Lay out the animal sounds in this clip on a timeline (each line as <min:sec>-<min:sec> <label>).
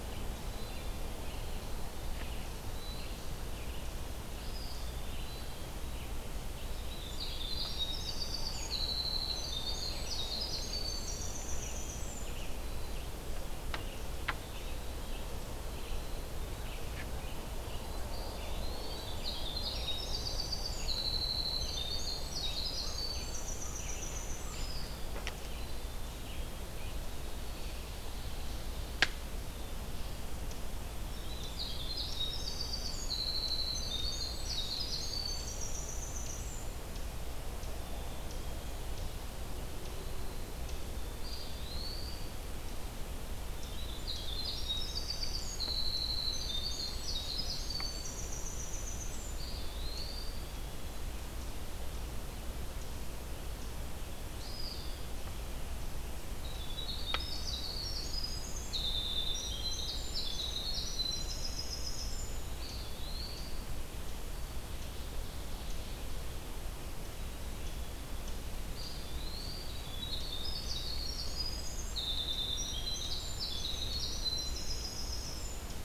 0:00.4-0:01.4 Hermit Thrush (Catharus guttatus)
0:02.4-0:03.4 Eastern Wood-Pewee (Contopus virens)
0:04.3-0:05.0 Eastern Wood-Pewee (Contopus virens)
0:05.0-0:06.0 Hermit Thrush (Catharus guttatus)
0:06.7-0:12.5 Winter Wren (Troglodytes hiemalis)
0:11.3-0:25.9 Red-eyed Vireo (Vireo olivaceus)
0:18.0-0:19.2 Eastern Wood-Pewee (Contopus virens)
0:18.7-0:24.9 Winter Wren (Troglodytes hiemalis)
0:24.4-0:25.1 Eastern Wood-Pewee (Contopus virens)
0:25.3-0:26.6 Hermit Thrush (Catharus guttatus)
0:31.0-0:36.8 Winter Wren (Troglodytes hiemalis)
0:37.7-0:38.9 Black-capped Chickadee (Poecile atricapillus)
0:41.1-0:42.4 Eastern Wood-Pewee (Contopus virens)
0:43.6-0:49.6 Winter Wren (Troglodytes hiemalis)
0:49.2-0:50.6 Eastern Wood-Pewee (Contopus virens)
0:54.3-0:55.2 Eastern Wood-Pewee (Contopus virens)
0:56.3-1:02.7 Winter Wren (Troglodytes hiemalis)
1:02.5-1:03.8 Eastern Wood-Pewee (Contopus virens)
1:08.6-1:15.8 Winter Wren (Troglodytes hiemalis)